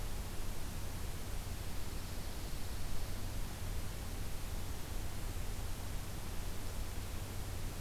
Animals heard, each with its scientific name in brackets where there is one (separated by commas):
Dark-eyed Junco (Junco hyemalis)